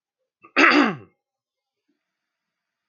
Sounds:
Throat clearing